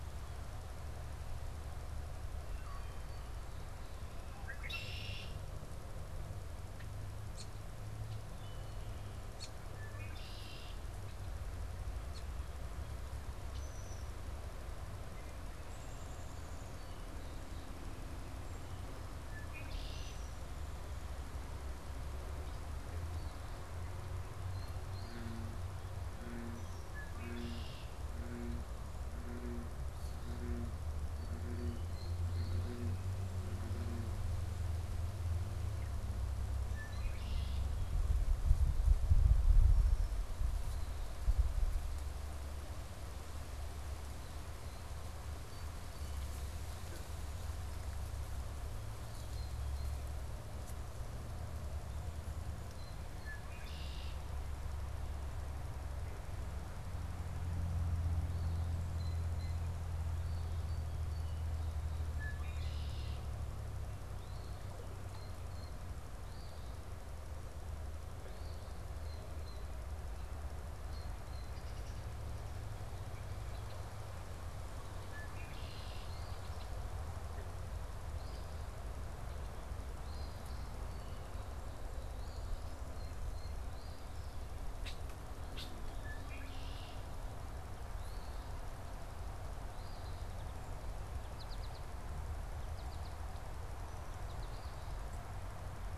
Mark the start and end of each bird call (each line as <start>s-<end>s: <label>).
4.0s-14.2s: Red-winged Blackbird (Agelaius phoeniceus)
15.4s-17.0s: Downy Woodpecker (Dryobates pubescens)
16.7s-18.2s: Song Sparrow (Melospiza melodia)
19.0s-20.5s: Red-winged Blackbird (Agelaius phoeniceus)
24.4s-25.3s: unidentified bird
26.1s-28.0s: Red-winged Blackbird (Agelaius phoeniceus)
31.9s-32.6s: unidentified bird
36.6s-37.7s: Red-winged Blackbird (Agelaius phoeniceus)
39.6s-40.2s: Red-winged Blackbird (Agelaius phoeniceus)
45.4s-46.3s: unidentified bird
49.1s-50.3s: unidentified bird
52.7s-54.2s: Red-winged Blackbird (Agelaius phoeniceus)
60.2s-62.0s: Song Sparrow (Melospiza melodia)
62.0s-63.4s: Red-winged Blackbird (Agelaius phoeniceus)
64.9s-71.5s: Blue Jay (Cyanocitta cristata)
66.0s-66.9s: Eastern Phoebe (Sayornis phoebe)
68.2s-68.8s: Eastern Phoebe (Sayornis phoebe)
73.1s-73.9s: Red-winged Blackbird (Agelaius phoeniceus)
74.9s-76.8s: Red-winged Blackbird (Agelaius phoeniceus)
78.1s-84.1s: Eastern Phoebe (Sayornis phoebe)
80.5s-81.5s: Song Sparrow (Melospiza melodia)
82.9s-83.6s: Blue Jay (Cyanocitta cristata)
84.5s-87.1s: Red-winged Blackbird (Agelaius phoeniceus)
87.7s-90.6s: Eastern Phoebe (Sayornis phoebe)
91.0s-95.9s: American Goldfinch (Spinus tristis)